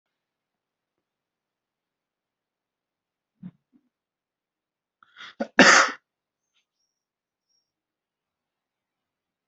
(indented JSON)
{
  "expert_labels": [
    {
      "quality": "good",
      "cough_type": "dry",
      "dyspnea": false,
      "wheezing": false,
      "stridor": false,
      "choking": false,
      "congestion": false,
      "nothing": true,
      "diagnosis": "healthy cough",
      "severity": "pseudocough/healthy cough"
    }
  ],
  "age": 20,
  "gender": "male",
  "respiratory_condition": false,
  "fever_muscle_pain": false,
  "status": "healthy"
}